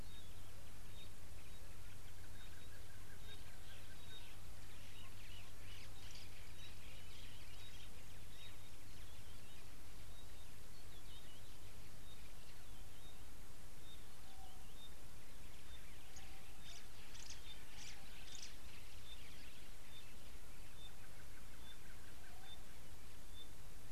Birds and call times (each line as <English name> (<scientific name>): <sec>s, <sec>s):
Pygmy Batis (Batis perkeo): 4.1s, 13.1s, 22.5s
White-browed Sparrow-Weaver (Plocepasser mahali): 17.9s